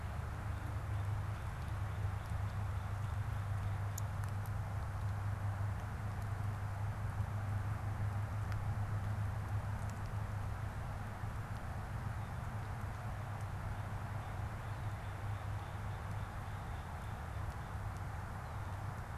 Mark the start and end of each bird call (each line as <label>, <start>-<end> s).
Northern Cardinal (Cardinalis cardinalis), 0.0-4.4 s
Northern Cardinal (Cardinalis cardinalis), 13.6-17.8 s